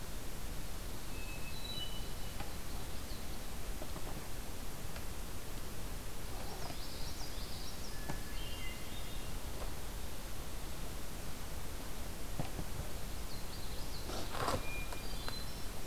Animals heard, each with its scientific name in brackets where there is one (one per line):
Common Yellowthroat (Geothlypis trichas)
Hermit Thrush (Catharus guttatus)